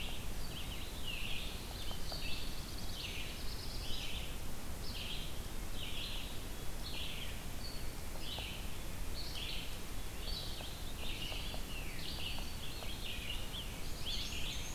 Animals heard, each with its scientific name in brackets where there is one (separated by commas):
Scarlet Tanager (Piranga olivacea), Black-and-white Warbler (Mniotilta varia), Yellow-bellied Sapsucker (Sphyrapicus varius), Black-throated Blue Warbler (Setophaga caerulescens), Red-eyed Vireo (Vireo olivaceus), Veery (Catharus fuscescens)